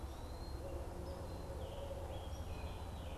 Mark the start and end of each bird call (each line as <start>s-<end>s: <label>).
0.0s-0.7s: Eastern Wood-Pewee (Contopus virens)
0.0s-3.2s: Red-eyed Vireo (Vireo olivaceus)
0.4s-3.2s: Barred Owl (Strix varia)
1.3s-3.2s: Scarlet Tanager (Piranga olivacea)